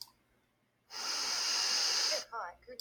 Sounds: Sniff